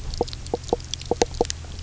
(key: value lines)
label: biophony, knock croak
recorder: SoundTrap 300